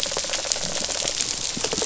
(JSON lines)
{"label": "biophony, rattle response", "recorder": "SoundTrap 500"}